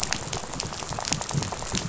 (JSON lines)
{"label": "biophony, rattle", "recorder": "SoundTrap 500"}